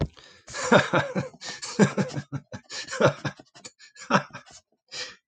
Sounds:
Laughter